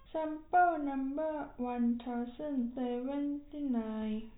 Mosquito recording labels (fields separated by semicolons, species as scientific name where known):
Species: no mosquito; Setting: cup